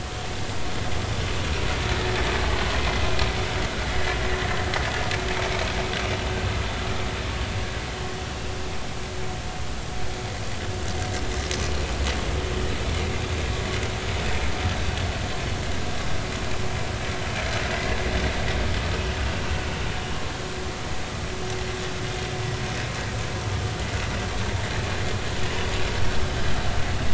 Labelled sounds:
17.7	18.0	vessel noise, 1.9 to 2.0 kHz

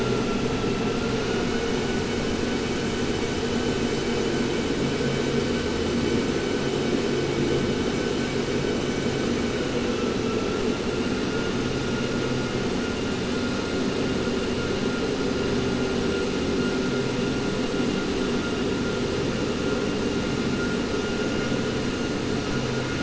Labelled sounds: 1.2	1.9	vessel noise, 1.4 to 3.0 kHz

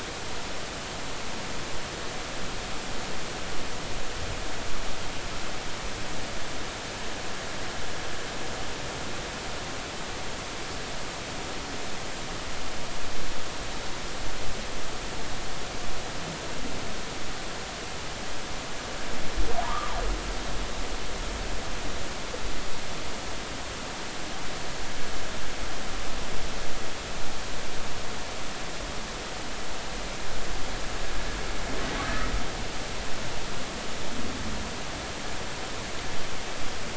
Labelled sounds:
19.6	19.9	humpback whale, 0.80 to 1.3 kHz

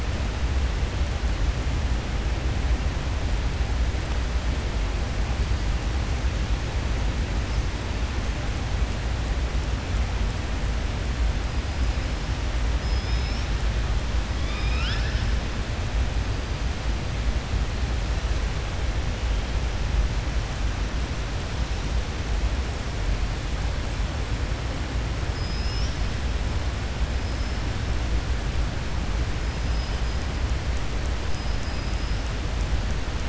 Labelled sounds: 14.3	15.3	killer whale, southern resident, 1.3 to 5.6 kHz
25.3	26.0	killer whale, southern resident, 4.8 to 6.0 kHz
31.2	32.1	killer whale, southern resident, 5.0 to 5.9 kHz

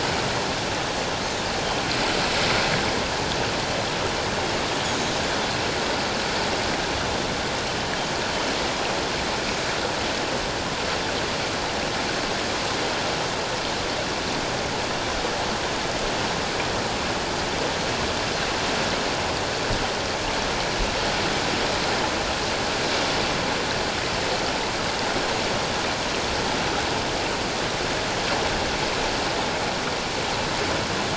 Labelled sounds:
4.8	5.2	Pacific white-sided dolphin, 6.4 to 7.0 kHz

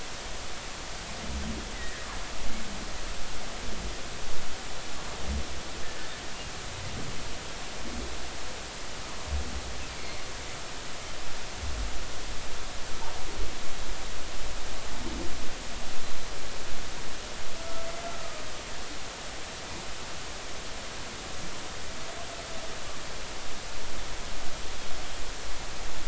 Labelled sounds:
1.7	2.0	humpback whale, 1.6 to 2.0 kHz
9.9	10.2	humpback whale, 2.0 to 2.4 kHz
18.0	18.4	humpback whale, 1.2 to 1.4 kHz

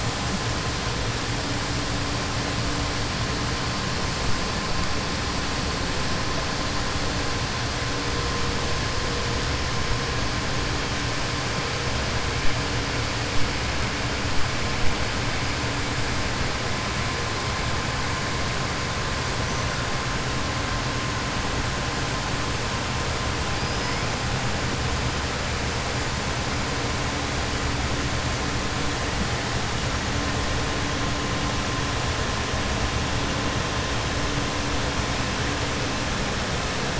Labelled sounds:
23.5	24.0	killer whale, southern resident, 4.7 to 6.0 kHz

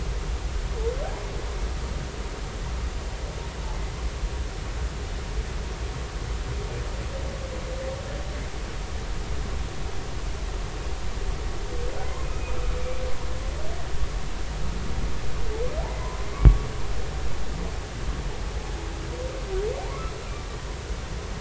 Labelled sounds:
12.2	12.6	humpback whale, 2.4 to 2.6 kHz
16.0	16.7	humpback whale, 0.93 to 1.2 kHz

